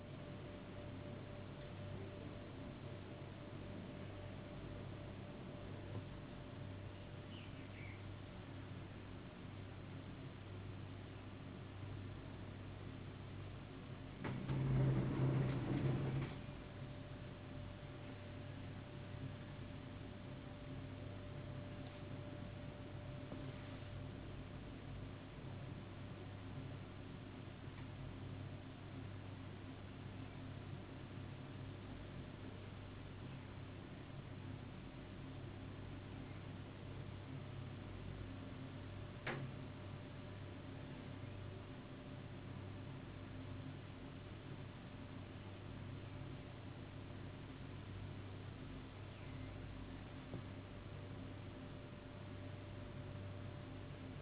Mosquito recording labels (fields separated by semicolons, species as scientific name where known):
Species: no mosquito; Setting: insect culture